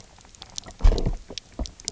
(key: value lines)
label: biophony, low growl
recorder: SoundTrap 300